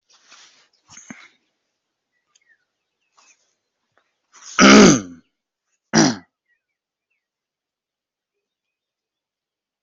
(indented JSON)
{
  "expert_labels": [
    {
      "quality": "no cough present",
      "cough_type": "unknown",
      "dyspnea": false,
      "wheezing": false,
      "stridor": false,
      "choking": false,
      "congestion": false,
      "nothing": true,
      "diagnosis": "healthy cough",
      "severity": "unknown"
    }
  ],
  "gender": "female",
  "respiratory_condition": false,
  "fever_muscle_pain": false,
  "status": "COVID-19"
}